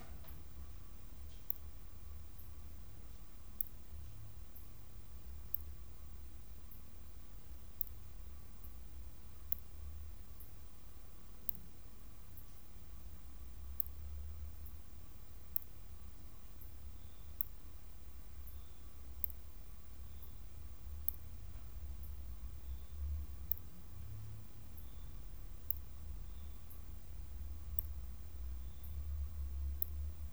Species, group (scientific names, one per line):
Leptophyes laticauda
Orthoptera